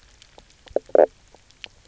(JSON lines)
{"label": "biophony, knock croak", "recorder": "SoundTrap 300"}